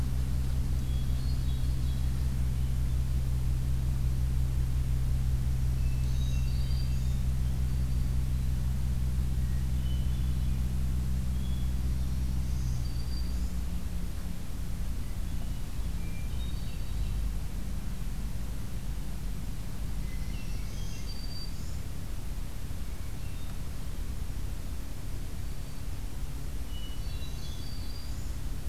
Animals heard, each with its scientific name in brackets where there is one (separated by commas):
Hermit Thrush (Catharus guttatus), Black-throated Green Warbler (Setophaga virens), Golden-crowned Kinglet (Regulus satrapa)